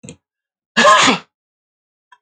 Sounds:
Sneeze